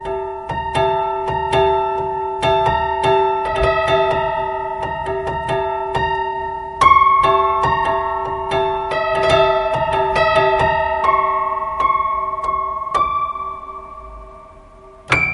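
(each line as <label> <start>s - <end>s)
Creepy piano music with a fast rhythm and frequent high-pitched changes. 0.1s - 15.3s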